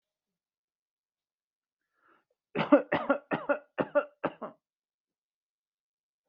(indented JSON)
{
  "expert_labels": [
    {
      "quality": "good",
      "cough_type": "dry",
      "dyspnea": false,
      "wheezing": false,
      "stridor": false,
      "choking": false,
      "congestion": false,
      "nothing": true,
      "diagnosis": "COVID-19",
      "severity": "mild"
    }
  ],
  "age": 46,
  "gender": "male",
  "respiratory_condition": false,
  "fever_muscle_pain": false,
  "status": "healthy"
}